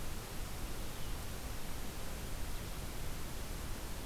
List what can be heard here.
Red-eyed Vireo